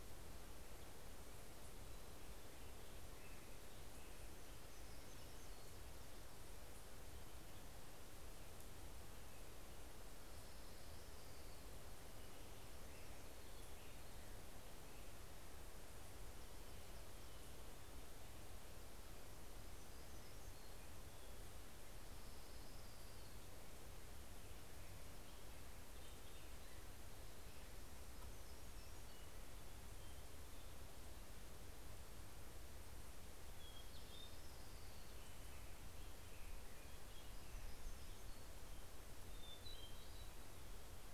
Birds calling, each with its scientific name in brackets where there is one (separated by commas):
Hermit Warbler (Setophaga occidentalis), Black-headed Grosbeak (Pheucticus melanocephalus), Hermit Thrush (Catharus guttatus), Orange-crowned Warbler (Leiothlypis celata)